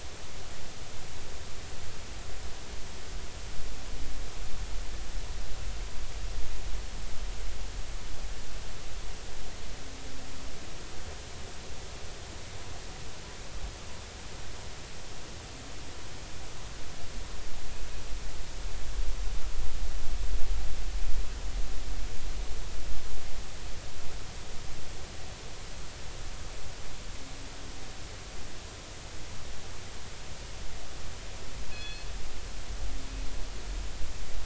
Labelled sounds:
31.7	32.1	killer whale, northern resident, G clan, call N24ii, 1.7 to 4.4 kHz

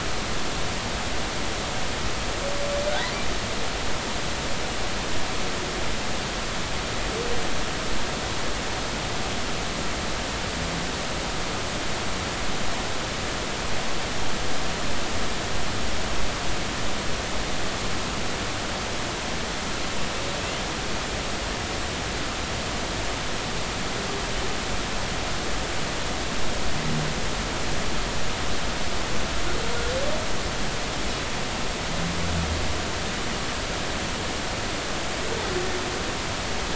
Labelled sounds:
2.9	3.1	humpback whale, 3.7 to 4.3 kHz

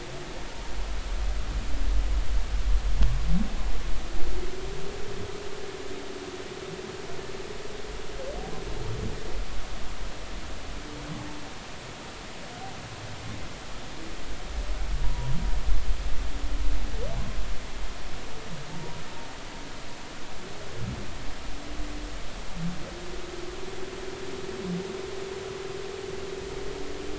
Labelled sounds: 15.0	15.4	humpback whale, 0.90 to 1.0 kHz
18.7	19.0	humpback whale, 0.86 to 0.99 kHz

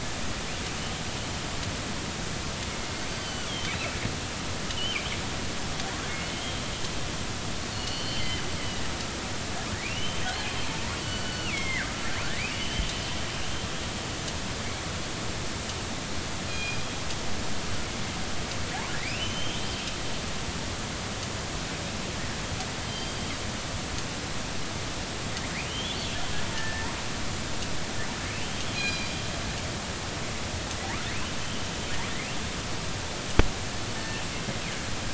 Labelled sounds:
3.1	3.7	killer whale, northern resident, G clan, 2.9 to 4.7 kHz
4.7	5.0	killer whale, northern resident, G clan, 2.7 to 3.2 kHz
6.3	6.6	killer whale, northern resident, R clan, call N32i, 3.0 to 3.3 kHz
7.7	8.4	killer whale, northern resident, G clan, GG subclan, call N23ii, 2.8 to 4.6 kHz
9.9	10.3	killer whale, northern resident, R clan, call N32i, 2.7 to 3.2 kHz
11.0	11.9	killer whale, northern resident, G clan, GG subclan, call N23ii, 1.3 to 4.5 kHz
12.4	12.9	killer whale, northern resident, R clan, call N32i, 2.2 to 3.2 kHz
16.5	16.8	killer whale, northern resident, G clan, call N24ii, 2.4 to 3.3 kHz
20.0	20.8	killer whale, northern resident, R clan, call N32i, 1.8 to 3.3 kHz
22.9	23.2	killer whale, northern resident, G clan, 3.0 to 4.8 kHz
25.7	26.0	killer whale, northern resident, R clan, call N32i, 2.8 to 3.6 kHz
26.5	26.9	killer whale, northern resident, R clan, call N33, 1.7 to 2.0 kHz
28.4	28.7	killer whale, northern resident, R clan, call N33, 3.0 to 3.2 kHz
28.7	29.1	killer whale, northern resident, G clan, call N24ii, 2.3 to 5.0 kHz
31.4	31.7	killer whale, northern resident, R clan, call N32i, 3.0 to 3.1 kHz
33.9	34.2	killer whale, northern resident, G clan, call N24i, 1.7 to 1.8 kHz

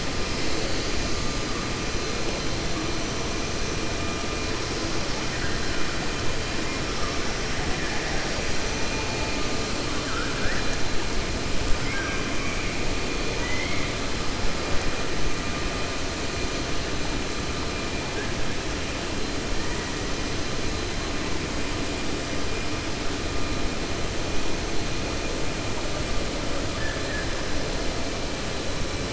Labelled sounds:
9.9	10.7	killer whale, 1.2 to 2.0 kHz
11.8	12.2	killer whale, 1.1 to 2.6 kHz
13.3	13.9	killer whale, 0.99 to 3.2 kHz
26.7	27.3	killer whale, 1.2 to 1.9 kHz

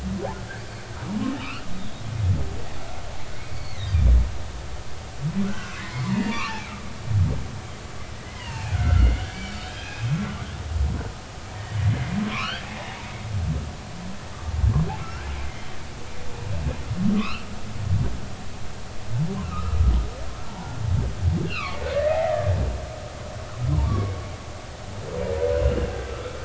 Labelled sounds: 1.4	1.7	humpback whale, 1.1 to 2.9 kHz
3.3	4.1	humpback whale, 1.8 to 4.6 kHz
5.5	6.6	humpback whale, 0.90 to 2.9 kHz
8.1	10.2	humpback whale, 0.80 to 3.3 kHz
12.3	13.1	humpback whale, 0.80 to 3.7 kHz
15.0	15.8	humpback whale, 1.2 to 3.2 kHz
17.2	17.5	humpback whale, 0.99 to 4.4 kHz
19.4	19.8	humpback whale, 1.1 to 1.4 kHz
21.4	22.5	humpback whale, 1.0 to 4.3 kHz
23.7	24.1	humpback whale, 0.86 to 1.2 kHz
25.5	26.4	humpback whale, 1.2 to 2.9 kHz

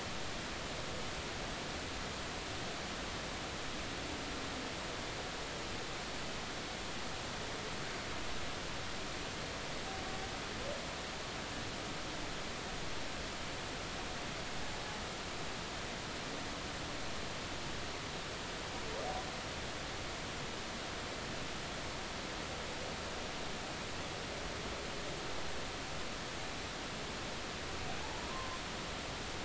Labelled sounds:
28.0	28.6	humpback whale, 0.80 to 1.2 kHz

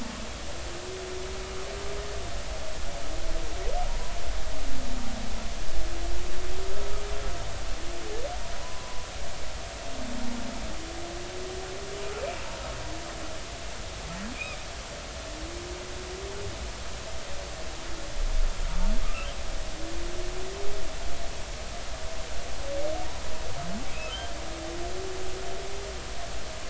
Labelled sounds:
8.5	9.1	humpback whale, 0.96 to 1.1 kHz
19.0	19.3	humpback whale, 1.1 to 1.4 kHz

